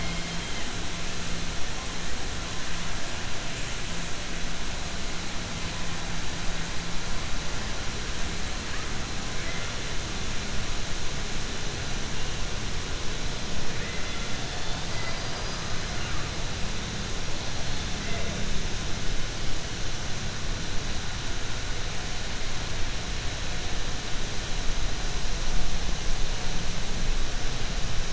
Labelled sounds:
13.7	15.6	killer whale, southern resident, 1.1 to 5.0 kHz

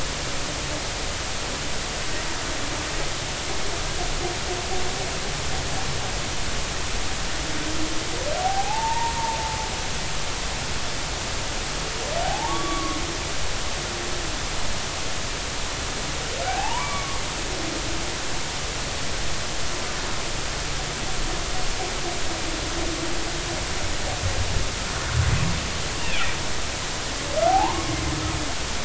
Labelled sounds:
8.4	9.2	humpback whale, 0.80 to 0.99 kHz
12.2	13.0	humpback whale, 0.80 to 3.5 kHz
16.5	17.2	humpback whale, 0.80 to 2.4 kHz
26.0	26.3	humpback whale, 2.2 to 2.9 kHz
27.5	27.9	humpback whale, 0.80 to 1.2 kHz

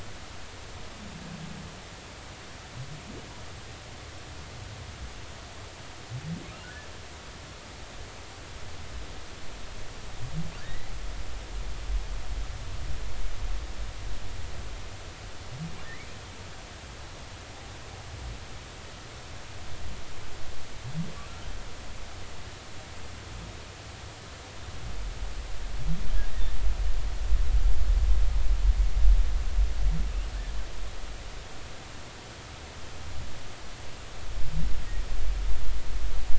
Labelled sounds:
10.6	10.9	humpback whale, 1.5 to 2.1 kHz
15.8	16.2	humpback whale, 1.8 to 2.6 kHz

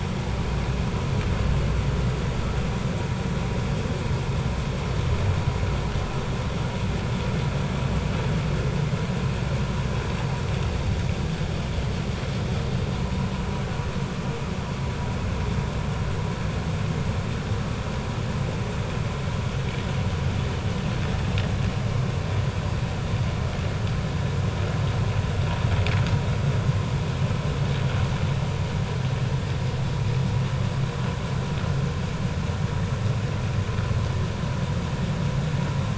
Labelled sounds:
12.9	13.3	vessel noise, 0.86 to 1.1 kHz

